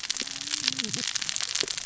{"label": "biophony, cascading saw", "recorder": "SoundTrap 600 or HydroMoth"}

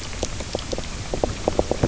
{"label": "biophony, knock croak", "recorder": "SoundTrap 300"}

